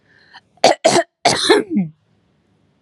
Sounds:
Throat clearing